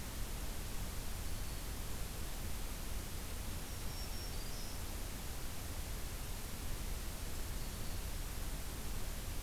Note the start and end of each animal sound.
1.1s-1.9s: Black-throated Green Warbler (Setophaga virens)
3.4s-4.8s: Black-throated Green Warbler (Setophaga virens)
7.5s-8.2s: Black-throated Green Warbler (Setophaga virens)

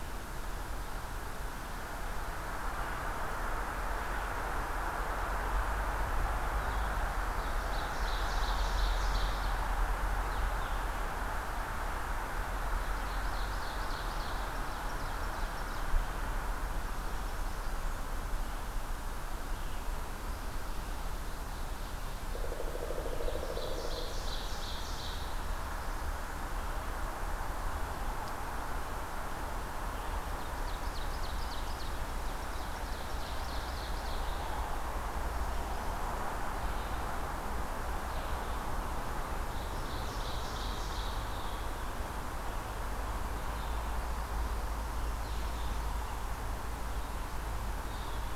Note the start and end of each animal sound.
7.0s-9.7s: Ovenbird (Seiurus aurocapilla)
12.7s-15.8s: Ovenbird (Seiurus aurocapilla)
21.0s-25.6s: Ovenbird (Seiurus aurocapilla)
22.2s-24.3s: Pileated Woodpecker (Dryocopus pileatus)
29.7s-48.4s: Red-eyed Vireo (Vireo olivaceus)
29.8s-34.3s: Ovenbird (Seiurus aurocapilla)
39.5s-41.2s: Ovenbird (Seiurus aurocapilla)

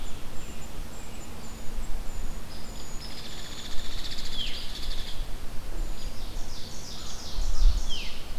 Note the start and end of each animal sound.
0.0s-4.1s: Brown Creeper (Certhia americana)
2.5s-5.4s: Hairy Woodpecker (Dryobates villosus)
4.2s-4.7s: Veery (Catharus fuscescens)
5.9s-6.1s: Hairy Woodpecker (Dryobates villosus)
6.0s-8.2s: Ovenbird (Seiurus aurocapilla)
7.7s-8.4s: Veery (Catharus fuscescens)

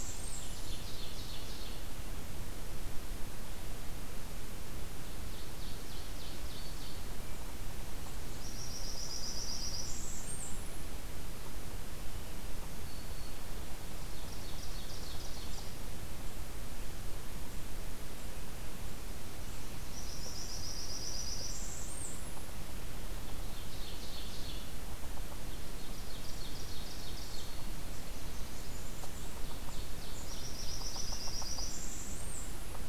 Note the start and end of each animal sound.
0.0s-0.7s: Blackburnian Warbler (Setophaga fusca)
0.2s-1.9s: Ovenbird (Seiurus aurocapilla)
5.2s-7.1s: Ovenbird (Seiurus aurocapilla)
8.2s-10.9s: Blackburnian Warbler (Setophaga fusca)
12.7s-13.5s: Black-throated Green Warbler (Setophaga virens)
14.0s-15.8s: Ovenbird (Seiurus aurocapilla)
19.8s-22.5s: Blackburnian Warbler (Setophaga fusca)
23.2s-24.7s: Ovenbird (Seiurus aurocapilla)
25.5s-27.7s: Ovenbird (Seiurus aurocapilla)
27.8s-29.4s: Blackburnian Warbler (Setophaga fusca)
29.3s-31.2s: Ovenbird (Seiurus aurocapilla)
30.2s-32.9s: Blackburnian Warbler (Setophaga fusca)

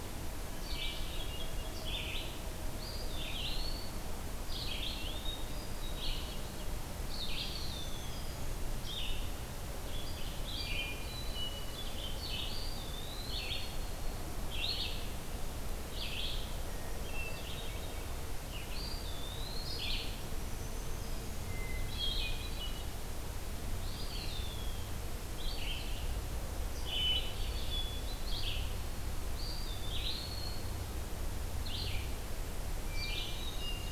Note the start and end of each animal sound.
0.2s-33.9s: Red-eyed Vireo (Vireo olivaceus)
0.6s-1.9s: Hermit Thrush (Catharus guttatus)
2.5s-4.1s: Eastern Wood-Pewee (Contopus virens)
5.0s-6.5s: Hermit Thrush (Catharus guttatus)
7.1s-8.3s: Eastern Wood-Pewee (Contopus virens)
7.3s-8.7s: Black-throated Green Warbler (Setophaga virens)
10.5s-12.0s: Hermit Thrush (Catharus guttatus)
12.4s-13.7s: Eastern Wood-Pewee (Contopus virens)
16.9s-18.2s: Hermit Thrush (Catharus guttatus)
18.5s-19.9s: Eastern Wood-Pewee (Contopus virens)
20.1s-21.7s: Black-throated Green Warbler (Setophaga virens)
21.5s-22.9s: Hermit Thrush (Catharus guttatus)
23.6s-25.0s: Eastern Wood-Pewee (Contopus virens)
26.9s-28.4s: Hermit Thrush (Catharus guttatus)
29.2s-30.8s: Eastern Wood-Pewee (Contopus virens)
32.8s-33.9s: Black-throated Green Warbler (Setophaga virens)
32.9s-33.9s: Hermit Thrush (Catharus guttatus)

